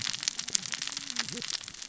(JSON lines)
{"label": "biophony, cascading saw", "recorder": "SoundTrap 600 or HydroMoth"}